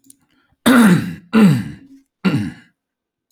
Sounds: Throat clearing